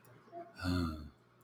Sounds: Sigh